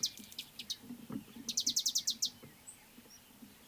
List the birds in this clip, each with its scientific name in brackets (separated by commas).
Mariqua Sunbird (Cinnyris mariquensis)